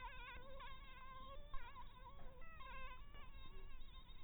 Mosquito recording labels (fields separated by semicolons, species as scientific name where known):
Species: Anopheles dirus; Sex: female; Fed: blood-fed; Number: one; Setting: cup